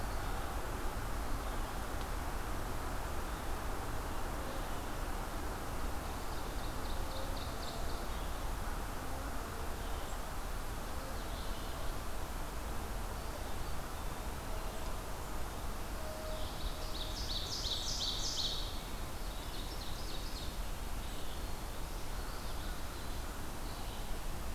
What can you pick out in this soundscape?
Red-eyed Vireo, Ovenbird, Eastern Wood-Pewee, Winter Wren, American Crow